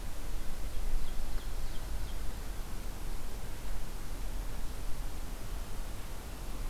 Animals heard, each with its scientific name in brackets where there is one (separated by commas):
Ovenbird (Seiurus aurocapilla)